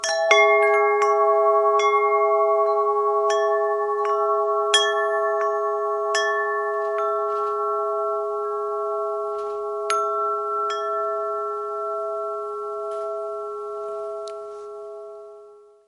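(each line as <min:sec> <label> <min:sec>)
0:00.0 Metallic chimes with an echo. 0:08.0
0:00.4 Pure tones with overtones. 0:15.9
0:09.9 A single metallic chime sounds. 0:11.2
0:10.8 Musical note with overtones softly fading away. 0:15.9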